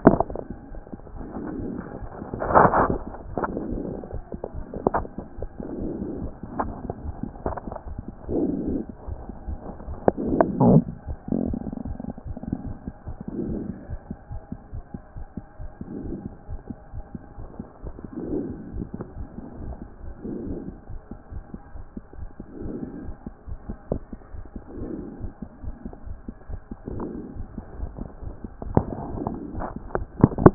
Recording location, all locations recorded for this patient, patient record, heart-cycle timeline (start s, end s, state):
aortic valve (AV)
aortic valve (AV)+pulmonary valve (PV)+tricuspid valve (TV)+mitral valve (MV)
#Age: Child
#Sex: Female
#Height: 126.0 cm
#Weight: 29.5 kg
#Pregnancy status: False
#Murmur: Absent
#Murmur locations: nan
#Most audible location: nan
#Systolic murmur timing: nan
#Systolic murmur shape: nan
#Systolic murmur grading: nan
#Systolic murmur pitch: nan
#Systolic murmur quality: nan
#Diastolic murmur timing: nan
#Diastolic murmur shape: nan
#Diastolic murmur grading: nan
#Diastolic murmur pitch: nan
#Diastolic murmur quality: nan
#Outcome: Abnormal
#Campaign: 2014 screening campaign
0.00	13.90	unannotated
13.90	14.00	S1
14.00	14.10	systole
14.10	14.16	S2
14.16	14.32	diastole
14.32	14.40	S1
14.40	14.52	systole
14.52	14.58	S2
14.58	14.74	diastole
14.74	14.82	S1
14.82	14.94	systole
14.94	15.02	S2
15.02	15.18	diastole
15.18	15.26	S1
15.26	15.38	systole
15.38	15.46	S2
15.46	15.62	diastole
15.62	15.70	S1
15.70	15.80	systole
15.80	15.86	S2
15.86	16.06	diastole
16.06	16.16	S1
16.16	16.24	systole
16.24	16.34	S2
16.34	16.50	diastole
16.50	16.60	S1
16.60	16.70	systole
16.70	16.78	S2
16.78	16.94	diastole
16.94	17.04	S1
17.04	17.14	systole
17.14	17.24	S2
17.24	17.38	diastole
17.38	30.54	unannotated